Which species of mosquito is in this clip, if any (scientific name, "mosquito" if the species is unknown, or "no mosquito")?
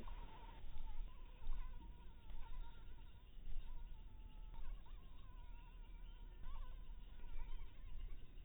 mosquito